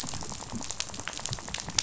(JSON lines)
{"label": "biophony, rattle", "recorder": "SoundTrap 500"}